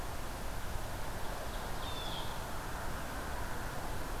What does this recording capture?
Ovenbird, Blue Jay